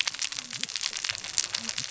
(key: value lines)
label: biophony, cascading saw
recorder: SoundTrap 600 or HydroMoth